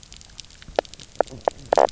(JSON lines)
{"label": "biophony, knock croak", "recorder": "SoundTrap 300"}